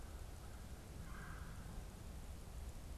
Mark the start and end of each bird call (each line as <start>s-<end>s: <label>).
0.0s-0.9s: American Crow (Corvus brachyrhynchos)
0.9s-1.7s: Red-bellied Woodpecker (Melanerpes carolinus)